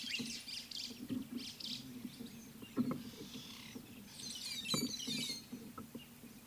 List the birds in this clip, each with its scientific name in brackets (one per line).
White-browed Sparrow-Weaver (Plocepasser mahali)
White-headed Buffalo-Weaver (Dinemellia dinemelli)
Ring-necked Dove (Streptopelia capicola)